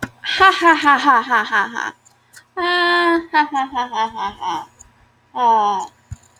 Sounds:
Laughter